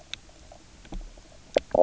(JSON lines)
{"label": "biophony, knock croak", "recorder": "SoundTrap 300"}